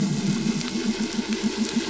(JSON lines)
{"label": "anthrophony, boat engine", "recorder": "SoundTrap 500"}